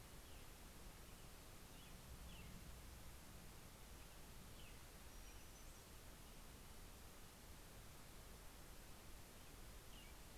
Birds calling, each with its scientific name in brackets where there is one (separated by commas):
American Robin (Turdus migratorius), Brown-headed Cowbird (Molothrus ater)